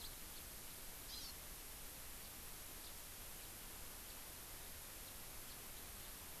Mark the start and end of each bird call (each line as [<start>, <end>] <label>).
[0.01, 0.10] House Finch (Haemorhous mexicanus)
[1.10, 1.30] Hawaii Amakihi (Chlorodrepanis virens)
[2.81, 2.90] House Finch (Haemorhous mexicanus)
[3.40, 3.50] House Finch (Haemorhous mexicanus)
[5.00, 5.11] House Finch (Haemorhous mexicanus)